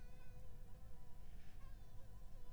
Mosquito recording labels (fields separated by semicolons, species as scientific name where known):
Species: Anopheles arabiensis; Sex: female; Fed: unfed; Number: one; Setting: cup